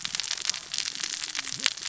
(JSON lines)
{"label": "biophony, cascading saw", "recorder": "SoundTrap 600 or HydroMoth"}